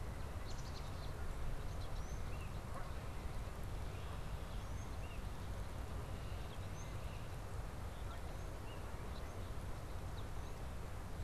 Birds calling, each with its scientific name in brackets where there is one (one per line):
Tufted Titmouse (Baeolophus bicolor)
Red-winged Blackbird (Agelaius phoeniceus)
Canada Goose (Branta canadensis)
Black-capped Chickadee (Poecile atricapillus)